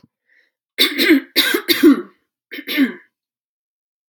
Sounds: Throat clearing